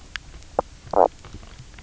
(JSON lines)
{"label": "biophony, knock croak", "recorder": "SoundTrap 300"}